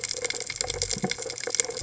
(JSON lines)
{"label": "biophony", "recorder": "HydroMoth"}